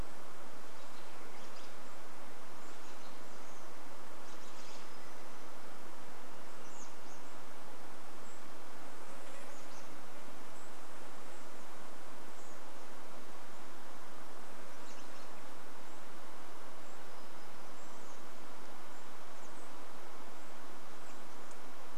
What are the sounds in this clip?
American Robin call, insect buzz, Golden-crowned Kinglet call, warbler song